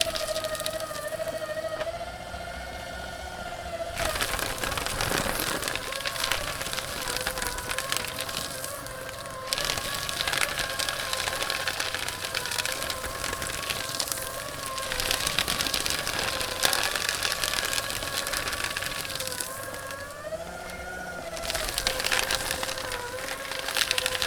What is being scrunched up in the device over and over again?
paper